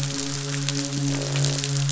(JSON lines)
{"label": "biophony, midshipman", "recorder": "SoundTrap 500"}
{"label": "biophony, croak", "recorder": "SoundTrap 500"}